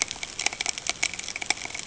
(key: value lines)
label: ambient
recorder: HydroMoth